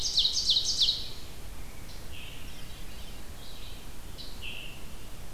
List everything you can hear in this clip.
Ovenbird, Red-eyed Vireo, Scarlet Tanager, Veery